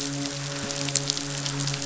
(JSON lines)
{"label": "biophony, midshipman", "recorder": "SoundTrap 500"}